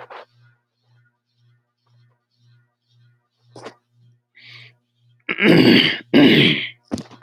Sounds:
Throat clearing